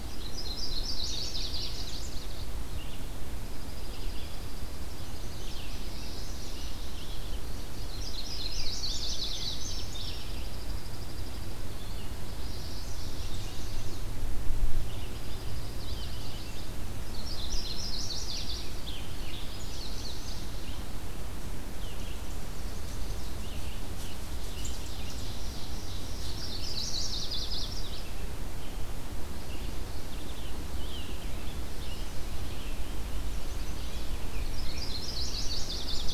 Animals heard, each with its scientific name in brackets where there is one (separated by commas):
Red-eyed Vireo (Vireo olivaceus), Chipping Sparrow (Spizella passerina), Scarlet Tanager (Piranga olivacea), Indigo Bunting (Passerina cyanea), Ovenbird (Seiurus aurocapilla), Chestnut-sided Warbler (Setophaga pensylvanica)